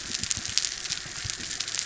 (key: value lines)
label: biophony
recorder: SoundTrap 300

label: anthrophony, boat engine
recorder: SoundTrap 300